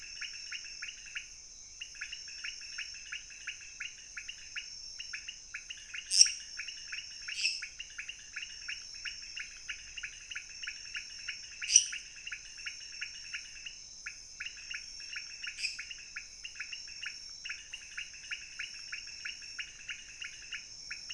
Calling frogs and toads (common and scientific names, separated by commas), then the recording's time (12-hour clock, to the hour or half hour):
pointedbelly frog (Leptodactylus podicipinus), lesser tree frog (Dendropsophus minutus)
2am